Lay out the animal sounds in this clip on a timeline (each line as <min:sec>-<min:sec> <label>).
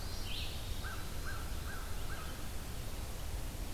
0:00.0-0:01.4 Eastern Wood-Pewee (Contopus virens)
0:00.0-0:02.4 American Crow (Corvus brachyrhynchos)
0:00.0-0:03.7 Red-eyed Vireo (Vireo olivaceus)